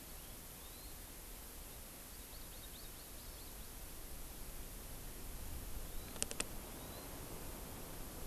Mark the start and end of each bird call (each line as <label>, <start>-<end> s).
Hawaii Amakihi (Chlorodrepanis virens), 0.2-1.0 s
Hawaii Amakihi (Chlorodrepanis virens), 2.1-3.9 s
Hawaii Amakihi (Chlorodrepanis virens), 5.8-6.3 s
Hawaii Amakihi (Chlorodrepanis virens), 6.7-7.2 s